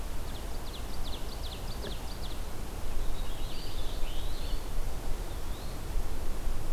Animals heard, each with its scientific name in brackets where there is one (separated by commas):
Eastern Wood-Pewee (Contopus virens), Ovenbird (Seiurus aurocapilla), Purple Finch (Haemorhous purpureus)